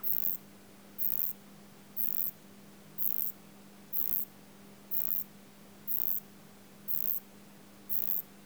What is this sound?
Uromenus elegans, an orthopteran